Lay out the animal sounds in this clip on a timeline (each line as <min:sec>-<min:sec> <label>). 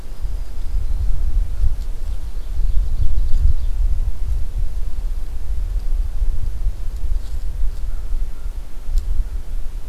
0:00.0-0:01.2 Black-throated Green Warbler (Setophaga virens)
0:01.9-0:03.8 Ovenbird (Seiurus aurocapilla)
0:07.7-0:09.7 American Crow (Corvus brachyrhynchos)